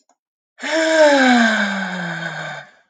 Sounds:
Sigh